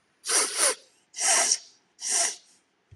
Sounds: Sniff